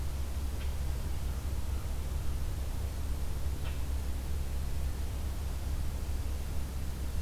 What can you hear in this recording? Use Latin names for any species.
forest ambience